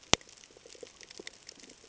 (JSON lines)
{"label": "ambient", "recorder": "HydroMoth"}